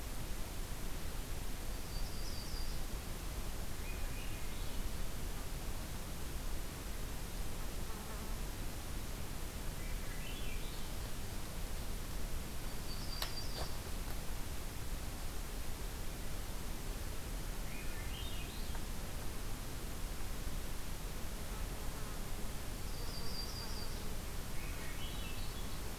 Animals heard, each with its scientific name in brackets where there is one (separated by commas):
Yellow-rumped Warbler (Setophaga coronata), Swainson's Thrush (Catharus ustulatus)